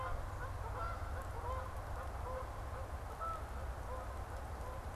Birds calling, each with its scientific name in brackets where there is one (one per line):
Canada Goose (Branta canadensis)